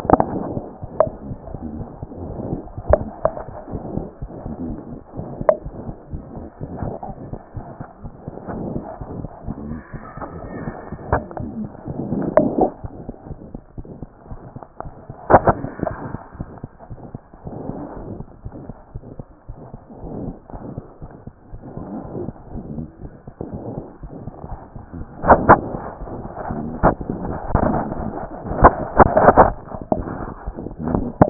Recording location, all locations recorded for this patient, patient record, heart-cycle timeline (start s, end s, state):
mitral valve (MV)
aortic valve (AV)+mitral valve (MV)
#Age: Child
#Sex: Female
#Height: 89.0 cm
#Weight: 13.8 kg
#Pregnancy status: False
#Murmur: Present
#Murmur locations: aortic valve (AV)+mitral valve (MV)
#Most audible location: aortic valve (AV)
#Systolic murmur timing: Holosystolic
#Systolic murmur shape: Diamond
#Systolic murmur grading: I/VI
#Systolic murmur pitch: Medium
#Systolic murmur quality: Blowing
#Diastolic murmur timing: nan
#Diastolic murmur shape: nan
#Diastolic murmur grading: nan
#Diastolic murmur pitch: nan
#Diastolic murmur quality: nan
#Outcome: Abnormal
#Campaign: 2014 screening campaign
0.00	12.74	unannotated
12.74	12.84	diastole
12.84	12.88	S1
12.88	13.08	systole
13.08	13.14	S2
13.14	13.30	diastole
13.30	13.36	S1
13.36	13.54	systole
13.54	13.60	S2
13.60	13.78	diastole
13.78	13.84	S1
13.84	14.02	systole
14.02	14.08	S2
14.08	14.32	diastole
14.32	14.38	S1
14.38	14.54	systole
14.54	14.61	S2
14.61	14.85	diastole
14.85	14.92	S1
14.92	15.08	systole
15.08	15.14	S2
15.14	15.30	diastole
15.30	31.30	unannotated